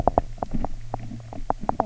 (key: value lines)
label: biophony, knock
recorder: SoundTrap 300